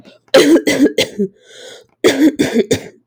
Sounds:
Cough